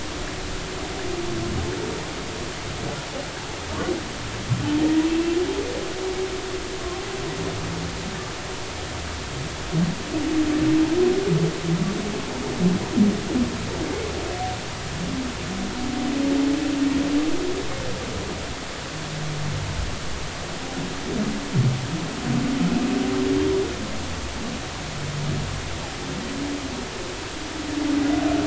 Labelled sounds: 5.1	5.4	humpback whale, 2.6 to 2.8 kHz
6.8	7.0	humpback whale, 1.0 to 1.2 kHz

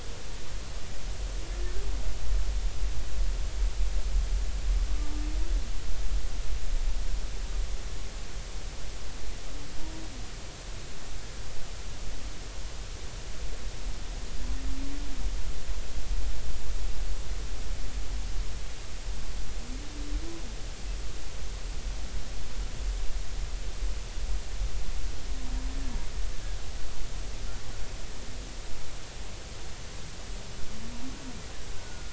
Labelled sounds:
31.8	32.1	humpback whale, 1.4 to 1.6 kHz

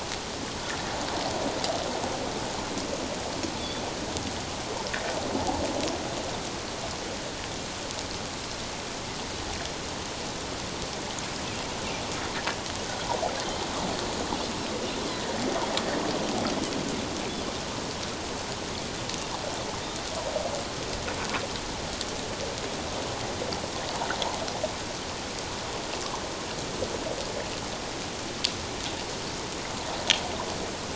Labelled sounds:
3.6	3.8	Pacific white-sided dolphin, 3.3 to 3.6 kHz
15.1	15.3	Pacific white-sided dolphin, 1.8 to 2.1 kHz

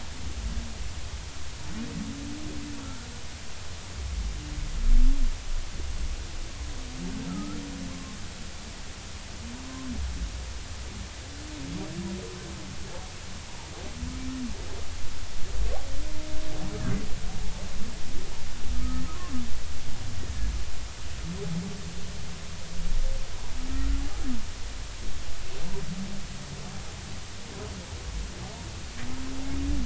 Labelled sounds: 2.8	3.1	humpback whale, 1.3 to 1.6 kHz
7.3	8.1	humpback whale, 1.0 to 1.4 kHz
18.7	19.0	humpback whale, 1.2 to 1.3 kHz

